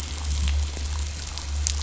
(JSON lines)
{"label": "anthrophony, boat engine", "recorder": "SoundTrap 500"}